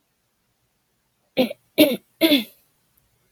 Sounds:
Throat clearing